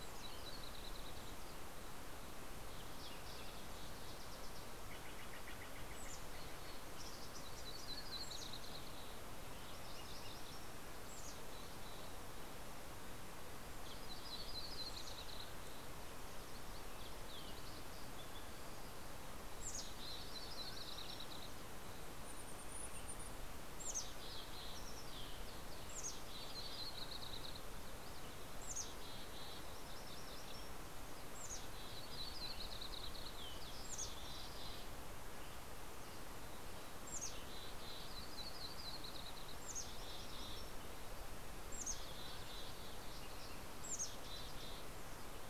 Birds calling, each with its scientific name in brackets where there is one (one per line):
Mountain Chickadee (Poecile gambeli)
Mountain Quail (Oreortyx pictus)
Steller's Jay (Cyanocitta stelleri)
Green-tailed Towhee (Pipilo chlorurus)
Yellow-rumped Warbler (Setophaga coronata)